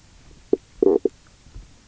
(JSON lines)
{"label": "biophony, knock croak", "recorder": "SoundTrap 300"}